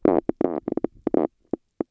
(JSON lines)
{"label": "biophony, stridulation", "recorder": "SoundTrap 300"}